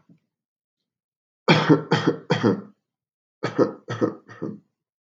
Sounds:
Cough